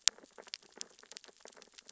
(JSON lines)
{"label": "biophony, sea urchins (Echinidae)", "recorder": "SoundTrap 600 or HydroMoth"}